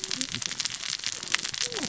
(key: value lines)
label: biophony, cascading saw
recorder: SoundTrap 600 or HydroMoth